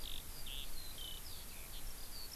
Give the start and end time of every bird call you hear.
0.0s-2.4s: Eurasian Skylark (Alauda arvensis)

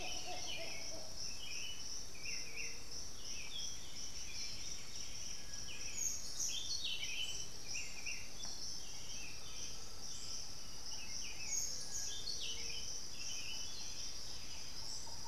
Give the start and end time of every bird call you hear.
0.0s-15.3s: Buff-throated Saltator (Saltator maximus)
3.9s-5.8s: White-winged Becard (Pachyramphus polychopterus)
7.2s-7.6s: Amazonian Motmot (Momotus momota)
8.9s-11.0s: Undulated Tinamou (Crypturellus undulatus)

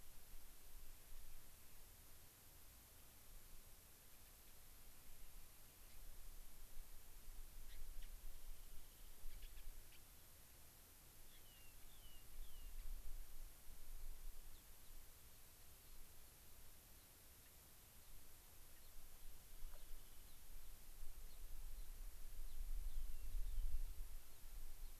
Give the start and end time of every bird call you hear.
5.8s-6.0s: Gray-crowned Rosy-Finch (Leucosticte tephrocotis)
7.7s-8.1s: Gray-crowned Rosy-Finch (Leucosticte tephrocotis)
8.3s-9.3s: Rock Wren (Salpinctes obsoletus)
9.3s-10.1s: Gray-crowned Rosy-Finch (Leucosticte tephrocotis)
11.3s-12.8s: Rock Wren (Salpinctes obsoletus)
14.5s-14.7s: Gray-crowned Rosy-Finch (Leucosticte tephrocotis)
18.8s-19.0s: Gray-crowned Rosy-Finch (Leucosticte tephrocotis)
19.8s-19.9s: Gray-crowned Rosy-Finch (Leucosticte tephrocotis)
21.3s-22.0s: Gray-crowned Rosy-Finch (Leucosticte tephrocotis)
22.8s-23.9s: Rock Wren (Salpinctes obsoletus)

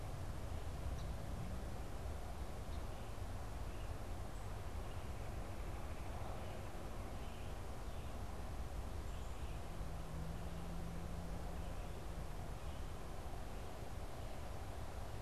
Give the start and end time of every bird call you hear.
0.8s-2.8s: Song Sparrow (Melospiza melodia)
4.8s-6.7s: Red-bellied Woodpecker (Melanerpes carolinus)

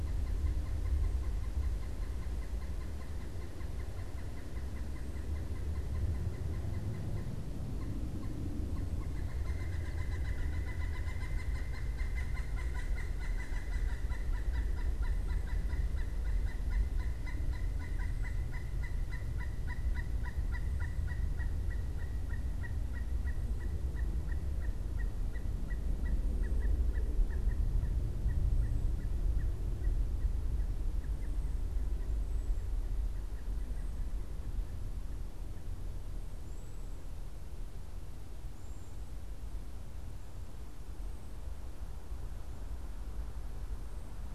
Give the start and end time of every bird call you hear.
0.0s-34.1s: Pileated Woodpecker (Dryocopus pileatus)
32.1s-39.2s: Cedar Waxwing (Bombycilla cedrorum)

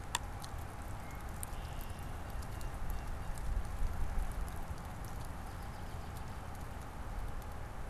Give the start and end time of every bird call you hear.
0.8s-2.6s: Red-winged Blackbird (Agelaius phoeniceus)
2.3s-3.5s: Blue Jay (Cyanocitta cristata)
5.2s-6.7s: American Robin (Turdus migratorius)

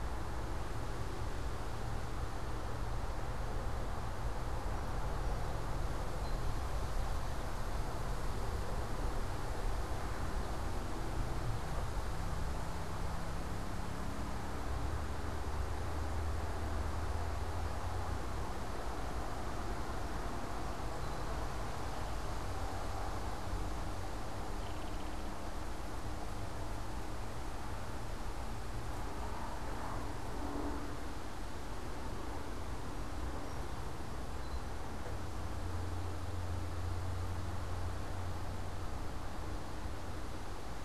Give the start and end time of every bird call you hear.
5.9s-7.0s: Song Sparrow (Melospiza melodia)
20.7s-21.8s: Song Sparrow (Melospiza melodia)
24.2s-25.4s: Belted Kingfisher (Megaceryle alcyon)
33.1s-35.2s: Song Sparrow (Melospiza melodia)

